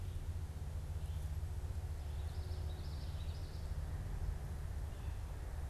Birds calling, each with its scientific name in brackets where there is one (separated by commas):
Common Yellowthroat (Geothlypis trichas)